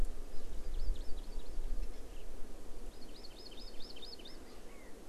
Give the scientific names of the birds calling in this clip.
Chlorodrepanis virens, Garrulax canorus